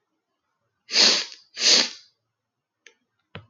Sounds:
Sniff